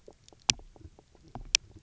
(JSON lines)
{"label": "biophony", "recorder": "SoundTrap 300"}